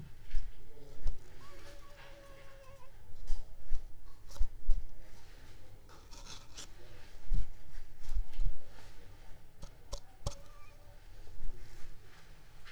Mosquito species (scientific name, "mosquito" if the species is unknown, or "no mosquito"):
Anopheles arabiensis